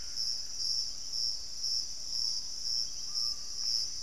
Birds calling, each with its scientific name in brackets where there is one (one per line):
Piratic Flycatcher (Legatus leucophaius)
Screaming Piha (Lipaugus vociferans)